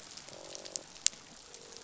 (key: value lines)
label: biophony, croak
recorder: SoundTrap 500